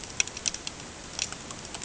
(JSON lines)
{"label": "ambient", "recorder": "HydroMoth"}